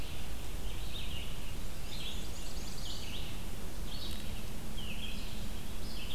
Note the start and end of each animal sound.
0.0s-6.1s: Red-eyed Vireo (Vireo olivaceus)
1.5s-3.3s: Black-and-white Warbler (Mniotilta varia)
1.9s-3.2s: Black-throated Blue Warbler (Setophaga caerulescens)

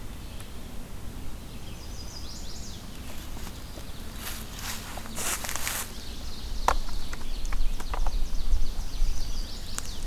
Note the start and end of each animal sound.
1.6s-2.8s: Chestnut-sided Warbler (Setophaga pensylvanica)
7.1s-9.2s: Ovenbird (Seiurus aurocapilla)
9.0s-10.1s: Chestnut-sided Warbler (Setophaga pensylvanica)

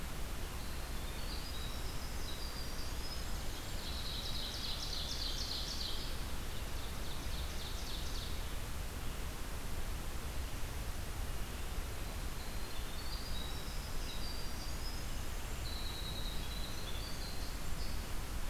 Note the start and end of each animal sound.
0.0s-4.1s: Winter Wren (Troglodytes hiemalis)
3.5s-8.6s: Ovenbird (Seiurus aurocapilla)
12.2s-18.5s: Winter Wren (Troglodytes hiemalis)

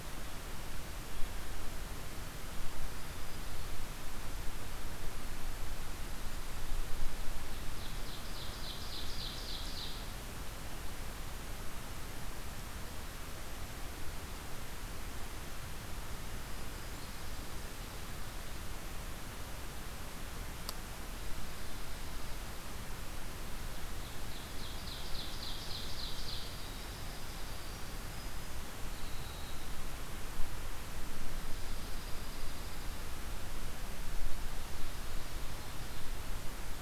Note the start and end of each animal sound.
2.7s-3.8s: Black-throated Green Warbler (Setophaga virens)
7.6s-10.1s: Ovenbird (Seiurus aurocapilla)
16.2s-17.3s: Black-throated Green Warbler (Setophaga virens)
17.2s-18.6s: Dark-eyed Junco (Junco hyemalis)
24.2s-26.5s: Ovenbird (Seiurus aurocapilla)
26.4s-30.3s: Winter Wren (Troglodytes hiemalis)
31.2s-33.0s: Dark-eyed Junco (Junco hyemalis)

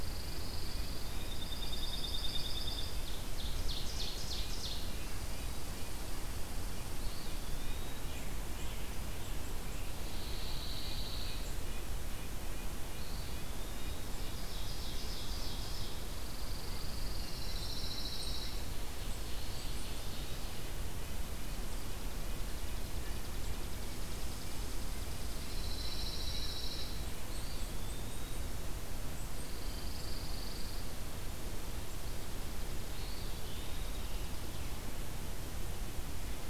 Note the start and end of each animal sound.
0.0s-3.0s: Pine Warbler (Setophaga pinus)
0.0s-14.5s: Red-breasted Nuthatch (Sitta canadensis)
3.0s-5.1s: Ovenbird (Seiurus aurocapilla)
5.0s-7.5s: Red Squirrel (Tamiasciurus hudsonicus)
6.8s-8.2s: Eastern Wood-Pewee (Contopus virens)
9.8s-11.7s: Pine Warbler (Setophaga pinus)
12.5s-14.4s: Eastern Wood-Pewee (Contopus virens)
13.8s-16.2s: Ovenbird (Seiurus aurocapilla)
15.9s-18.7s: Pine Warbler (Setophaga pinus)
17.1s-17.9s: Wood Thrush (Hylocichla mustelina)
18.4s-20.5s: Ovenbird (Seiurus aurocapilla)
19.4s-26.4s: Red-breasted Nuthatch (Sitta canadensis)
22.1s-25.0s: Chipping Sparrow (Spizella passerina)
23.8s-30.1s: Red Squirrel (Tamiasciurus hudsonicus)
25.5s-27.1s: Pine Warbler (Setophaga pinus)
27.0s-28.9s: Eastern Wood-Pewee (Contopus virens)
29.1s-31.3s: Pine Warbler (Setophaga pinus)
32.1s-34.8s: Chipping Sparrow (Spizella passerina)
32.7s-34.4s: Eastern Wood-Pewee (Contopus virens)

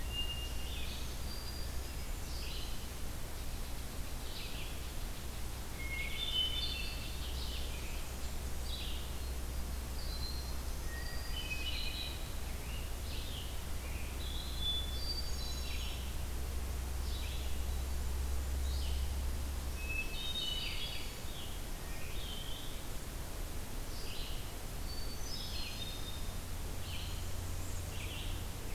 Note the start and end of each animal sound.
0.0s-0.6s: Hermit Thrush (Catharus guttatus)
0.0s-13.6s: Red-eyed Vireo (Vireo olivaceus)
0.4s-2.0s: Black-throated Green Warbler (Setophaga virens)
4.3s-8.2s: unknown mammal
5.5s-7.1s: Hermit Thrush (Catharus guttatus)
9.7s-11.7s: Black-throated Green Warbler (Setophaga virens)
10.8s-12.5s: Hermit Thrush (Catharus guttatus)
12.4s-14.3s: Scarlet Tanager (Piranga olivacea)
14.4s-16.1s: Hermit Thrush (Catharus guttatus)
15.5s-28.7s: Red-eyed Vireo (Vireo olivaceus)
19.6s-21.2s: Hermit Thrush (Catharus guttatus)
24.7s-26.5s: Hermit Thrush (Catharus guttatus)

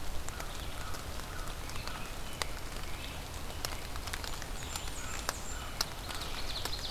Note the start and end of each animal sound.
0.0s-6.9s: Red-eyed Vireo (Vireo olivaceus)
0.2s-2.1s: American Crow (Corvus brachyrhynchos)
1.8s-4.0s: American Robin (Turdus migratorius)
4.1s-5.8s: Blackburnian Warbler (Setophaga fusca)
4.8s-6.8s: American Robin (Turdus migratorius)
6.2s-6.9s: Ovenbird (Seiurus aurocapilla)

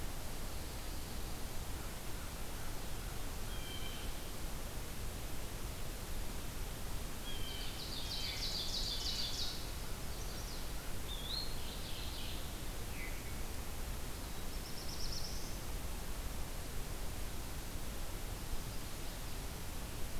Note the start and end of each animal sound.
1.7s-3.6s: American Crow (Corvus brachyrhynchos)
3.3s-4.2s: Blue Jay (Cyanocitta cristata)
7.1s-9.6s: Blue Jay (Cyanocitta cristata)
7.5s-9.6s: Ovenbird (Seiurus aurocapilla)
9.7s-10.6s: Chestnut-sided Warbler (Setophaga pensylvanica)
10.8s-12.0s: Eastern Wood-Pewee (Contopus virens)
11.6s-12.4s: Mourning Warbler (Geothlypis philadelphia)
12.6s-13.3s: Veery (Catharus fuscescens)
14.1s-15.7s: Black-throated Blue Warbler (Setophaga caerulescens)

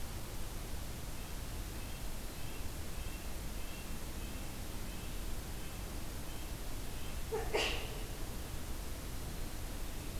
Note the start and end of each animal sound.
0.9s-7.3s: Red-breasted Nuthatch (Sitta canadensis)

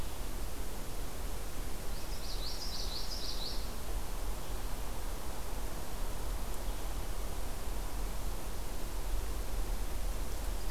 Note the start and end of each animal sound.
2.0s-3.7s: Common Yellowthroat (Geothlypis trichas)

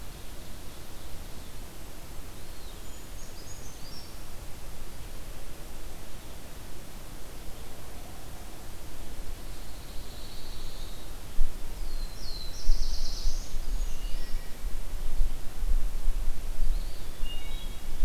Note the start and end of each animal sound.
2.0s-3.2s: Eastern Wood-Pewee (Contopus virens)
2.6s-4.4s: Brown Creeper (Certhia americana)
9.3s-11.2s: Pine Warbler (Setophaga pinus)
11.6s-13.9s: Black-throated Blue Warbler (Setophaga caerulescens)
13.1s-14.5s: Brown Creeper (Certhia americana)
13.6s-14.9s: Wood Thrush (Hylocichla mustelina)
16.4s-18.0s: Eastern Wood-Pewee (Contopus virens)
17.0s-18.0s: Wood Thrush (Hylocichla mustelina)

